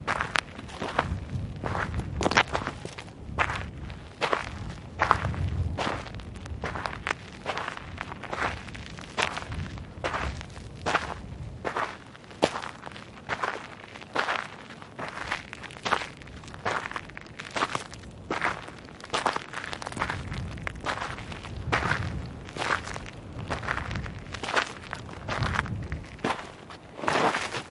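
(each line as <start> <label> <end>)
0.0 A man is walking on gravel and sand with crisp, rhythmic steps outdoors. 27.7
0.0 A soft breeze stirs quietly in the still air. 27.7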